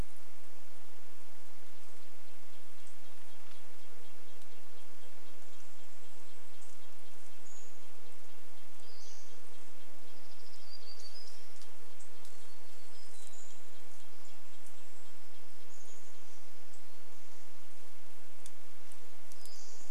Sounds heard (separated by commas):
Red-breasted Nuthatch song, Pacific-slope Flycatcher call, warbler song, unidentified bird chip note, insect buzz, Chestnut-backed Chickadee call